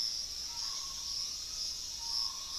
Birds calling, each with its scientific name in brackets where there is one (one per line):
Starred Wood-Quail (Odontophorus stellatus)